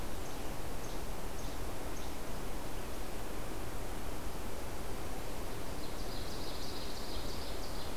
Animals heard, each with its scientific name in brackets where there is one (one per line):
Least Flycatcher (Empidonax minimus)
Ovenbird (Seiurus aurocapilla)